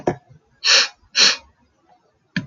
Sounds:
Sniff